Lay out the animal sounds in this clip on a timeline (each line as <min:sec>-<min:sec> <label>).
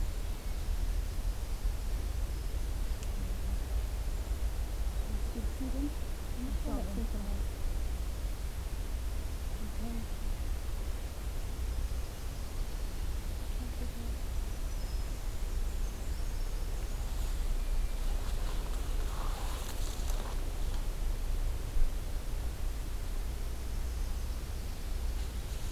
0:14.2-0:15.3 Black-throated Green Warbler (Setophaga virens)
0:15.5-0:17.2 Yellow-rumped Warbler (Setophaga coronata)